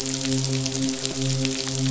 {"label": "biophony, midshipman", "recorder": "SoundTrap 500"}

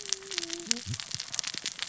{"label": "biophony, cascading saw", "recorder": "SoundTrap 600 or HydroMoth"}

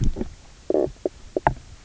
{"label": "biophony, knock croak", "recorder": "SoundTrap 300"}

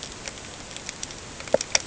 {"label": "ambient", "recorder": "HydroMoth"}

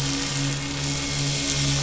{"label": "anthrophony, boat engine", "recorder": "SoundTrap 500"}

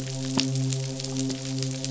{"label": "biophony, midshipman", "recorder": "SoundTrap 500"}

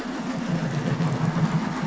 {"label": "anthrophony, boat engine", "recorder": "SoundTrap 500"}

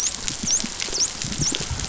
{"label": "biophony, dolphin", "recorder": "SoundTrap 500"}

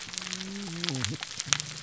{"label": "biophony, whup", "recorder": "SoundTrap 300"}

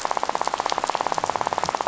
{"label": "biophony, rattle", "recorder": "SoundTrap 500"}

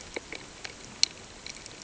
{"label": "ambient", "recorder": "HydroMoth"}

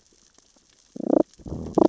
{"label": "biophony, damselfish", "recorder": "SoundTrap 600 or HydroMoth"}
{"label": "biophony, growl", "recorder": "SoundTrap 600 or HydroMoth"}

